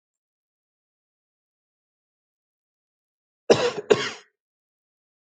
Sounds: Cough